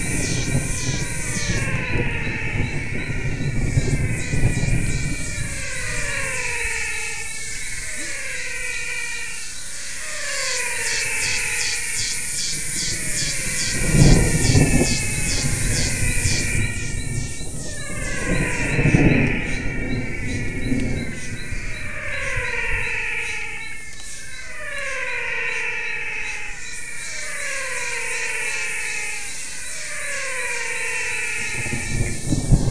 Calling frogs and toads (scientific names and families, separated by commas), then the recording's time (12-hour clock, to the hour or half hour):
Adenomera diptyx (Leptodactylidae), Physalaemus albonotatus (Leptodactylidae)
6pm